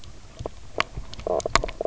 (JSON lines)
{"label": "biophony, knock croak", "recorder": "SoundTrap 300"}